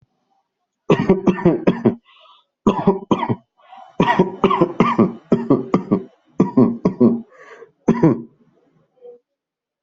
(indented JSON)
{
  "expert_labels": [
    {
      "quality": "ok",
      "cough_type": "dry",
      "dyspnea": false,
      "wheezing": false,
      "stridor": false,
      "choking": false,
      "congestion": false,
      "nothing": true,
      "diagnosis": "lower respiratory tract infection",
      "severity": "mild"
    },
    {
      "quality": "ok",
      "cough_type": "dry",
      "dyspnea": false,
      "wheezing": false,
      "stridor": false,
      "choking": false,
      "congestion": false,
      "nothing": true,
      "diagnosis": "upper respiratory tract infection",
      "severity": "mild"
    },
    {
      "quality": "good",
      "cough_type": "dry",
      "dyspnea": false,
      "wheezing": false,
      "stridor": false,
      "choking": false,
      "congestion": false,
      "nothing": true,
      "diagnosis": "upper respiratory tract infection",
      "severity": "mild"
    },
    {
      "quality": "good",
      "cough_type": "dry",
      "dyspnea": false,
      "wheezing": false,
      "stridor": false,
      "choking": false,
      "congestion": false,
      "nothing": true,
      "diagnosis": "upper respiratory tract infection",
      "severity": "severe"
    }
  ],
  "age": 26,
  "gender": "male",
  "respiratory_condition": false,
  "fever_muscle_pain": false,
  "status": "healthy"
}